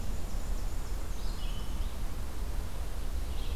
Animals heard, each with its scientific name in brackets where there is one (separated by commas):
Black-and-white Warbler (Mniotilta varia), Red-eyed Vireo (Vireo olivaceus)